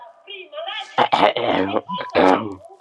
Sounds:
Cough